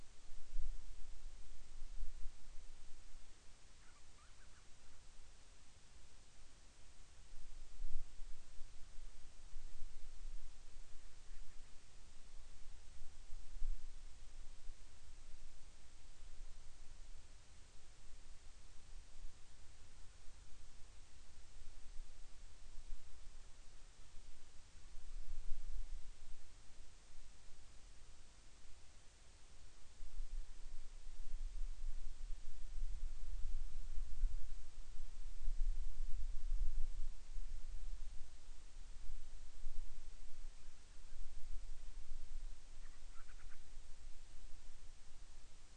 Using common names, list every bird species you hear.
Band-rumped Storm-Petrel